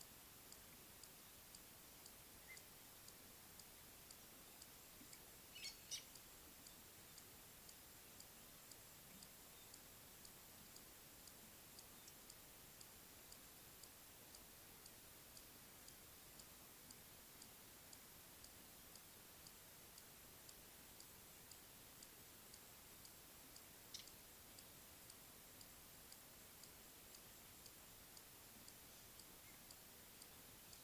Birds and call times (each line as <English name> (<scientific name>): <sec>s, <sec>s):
Fork-tailed Drongo (Dicrurus adsimilis): 5.7s